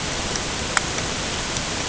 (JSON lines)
{"label": "ambient", "recorder": "HydroMoth"}